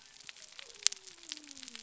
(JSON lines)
{"label": "biophony", "recorder": "SoundTrap 300"}